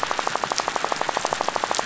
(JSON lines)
{"label": "biophony, rattle", "recorder": "SoundTrap 500"}